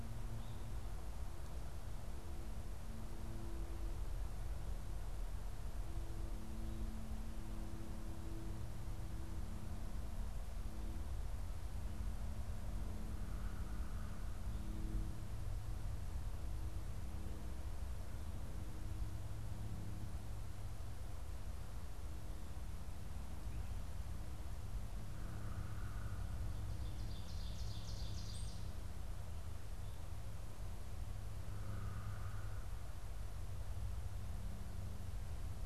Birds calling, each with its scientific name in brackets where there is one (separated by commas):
unidentified bird, Ovenbird (Seiurus aurocapilla)